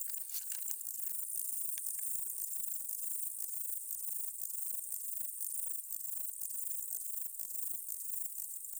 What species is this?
Stauroderus scalaris